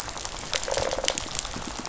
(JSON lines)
{"label": "biophony", "recorder": "SoundTrap 500"}